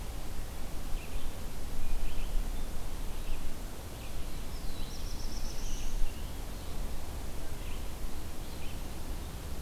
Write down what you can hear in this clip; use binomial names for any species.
Vireo olivaceus, Setophaga caerulescens